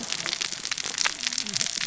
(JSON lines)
{"label": "biophony, cascading saw", "recorder": "SoundTrap 600 or HydroMoth"}